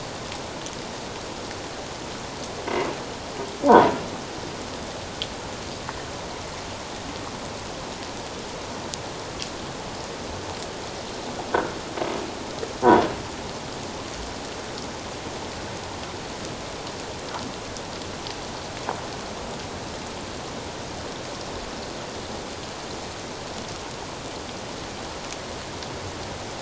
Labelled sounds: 3.7	4.0	croaking sound likely from a nearby submerged object, 0.78 to 1.1 kHz

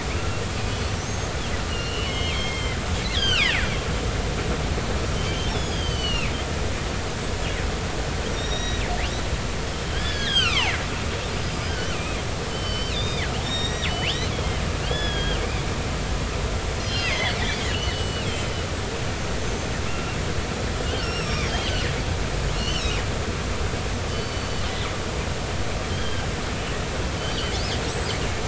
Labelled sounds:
1.0	3.8	killer whale, northern resident, 1.1 to 6.6 kHz
5.2	6.3	killer whale, northern resident, 2.5 to 6.8 kHz
8.3	8.8	killer whale, northern resident, 1.9 to 5.9 kHz
9.9	10.7	killer whale, northern resident, 0.80 to 8.0 kHz
11.3	12.0	killer whale, northern resident, 1.2 to 5.1 kHz
12.5	14.3	killer whale, northern resident, 1.6 to 7.8 kHz
14.8	15.6	killer whale, northern resident, 1.4 to 5.2 kHz
16.8	18.7	killer whale, northern resident, 1.6 to 6.3 kHz
19.4	20.2	killer whale, northern resident, 2.6 to 6.3 kHz
20.8	21.9	killer whale, northern resident, 1.2 to 5.6 kHz
22.5	23.0	killer whale, northern resident, 2.4 to 5.8 kHz
24.1	24.5	killer whale, northern resident, 4.4 to 4.6 kHz
25.9	26.3	killer whale, northern resident, 3.0 to 3.4 kHz
27.2	28.2	killer whale, northern resident, 2.8 to 7.9 kHz

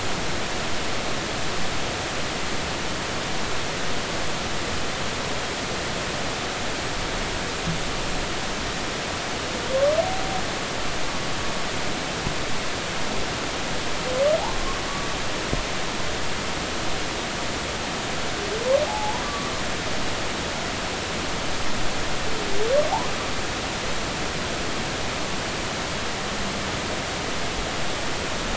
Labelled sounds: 18.9	19.5	humpback whale, 0.80 to 1.2 kHz

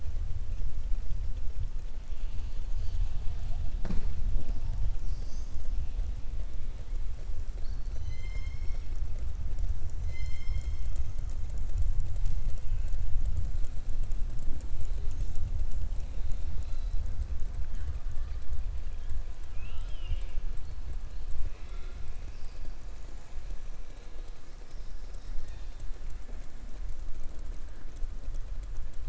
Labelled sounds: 19.4	20.4	killer whale, southern resident, 1.0 to 5.0 kHz

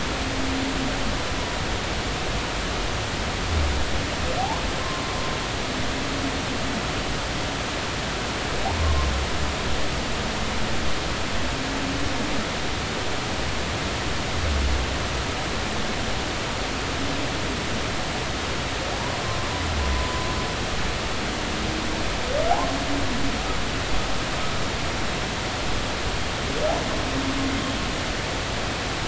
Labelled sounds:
8.8	9.1	humpback whale, 0.96 to 1.1 kHz
19.9	20.3	humpback whale, 0.96 to 1.1 kHz

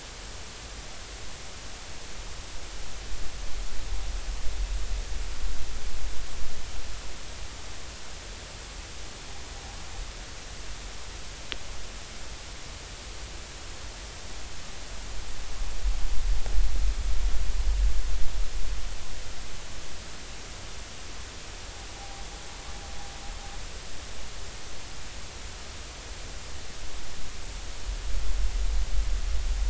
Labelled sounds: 22.0	22.2	noise likely from the mooring, 0.80 to 1.0 kHz

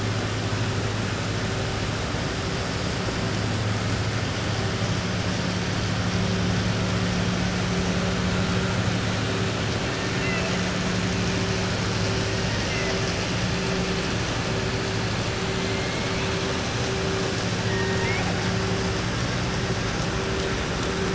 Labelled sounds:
17.6	18.4	killer whale, southern resident, 0.71 to 2.5 kHz

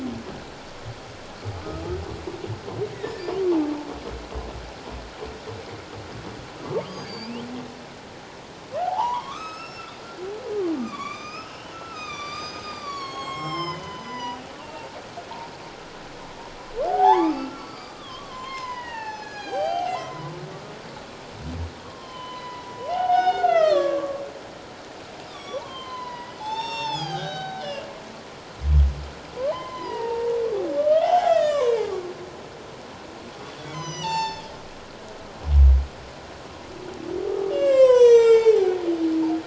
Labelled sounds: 1.6	1.8	humpback whale, 1.1 to 1.3 kHz
2.9	3.7	humpback whale, 0.81 to 2.0 kHz
6.6	7.5	humpback whale, 1.1 to 5.0 kHz
8.8	9.9	humpback whale, 0.78 to 8.0 kHz
10.8	14.9	humpback whale, 0.84 to 7.7 kHz
16.9	20.3	humpback whale, 0.78 to 6.8 kHz
21.8	24.2	humpback whale, 0.78 to 6.7 kHz
25.3	27.9	humpback whale, 0.78 to 8.0 kHz
29.5	31.8	humpback whale, 0.78 to 5.6 kHz
33.6	34.4	humpback whale, 0.78 to 8.0 kHz
37.5	38.8	humpback whale, 0.78 to 8.0 kHz

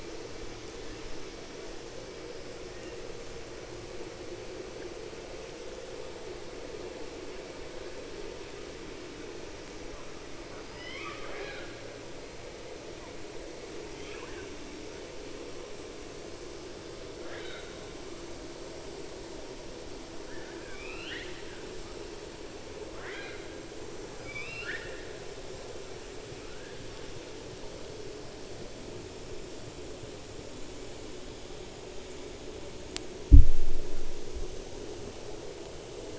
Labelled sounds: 10.6	11.7	killer whale, 0.55 to 5.3 kHz
17.1	17.7	killer whale, 0.59 to 4.3 kHz
20.2	21.5	killer whale, 1.2 to 4.4 kHz
22.8	23.4	killer whale, 0.71 to 4.1 kHz
24.1	25.0	killer whale, 1.1 to 5.2 kHz

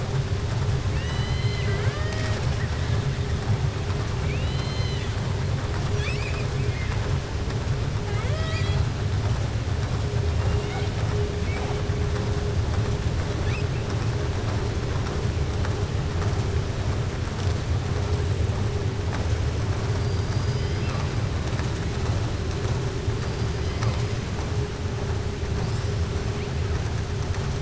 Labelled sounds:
4.2	5.1	killer whale, southern resident, 2.0 to 4.4 kHz

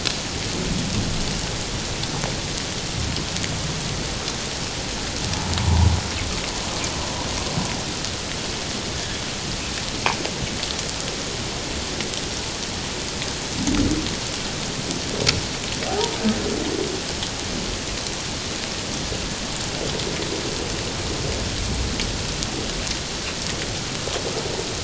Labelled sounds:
5.6	5.9	humpback whale, 0.81 to 1.0 kHz
15.9	16.1	humpback whale, 0.78 to 1.0 kHz

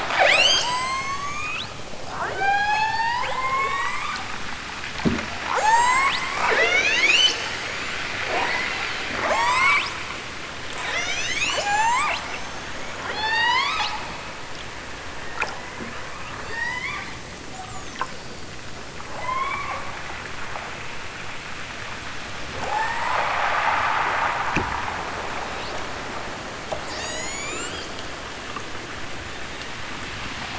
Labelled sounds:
0.0	1.8	killer whale, southern Alaska resident, 0.37 to 8.0 kHz
2.4	4.3	killer whale, southern Alaska resident, 0.51 to 8.0 kHz
5.5	7.9	killer whale, southern Alaska resident, 0.18 to 8.0 kHz
8.2	10.2	killer whale, southern Alaska resident, 0.18 to 8.0 kHz
10.7	14.0	killer whale, southern Alaska resident, 0.18 to 8.0 kHz
15.6	17.1	killer whale, southern Alaska resident, 0.46 to 8.0 kHz
19.1	20.0	killer whale, southern Alaska resident, 0.64 to 8.0 kHz
22.6	23.5	killer whale, southern Alaska resident, 0.32 to 8.0 kHz
26.8	28.0	killer whale, southern Alaska resident, 0.46 to 8.0 kHz

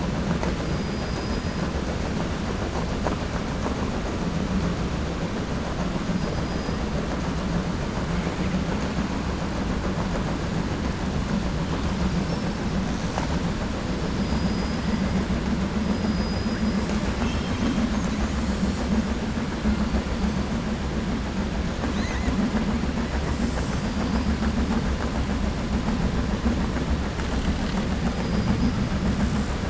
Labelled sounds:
16.0	16.6	killer whale, 4.9 to 5.2 kHz
17.1	17.8	killer whale, 0.69 to 3.9 kHz

